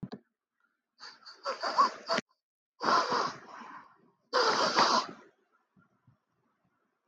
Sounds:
Sniff